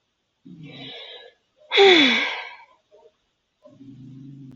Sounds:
Sigh